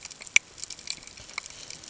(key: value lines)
label: ambient
recorder: HydroMoth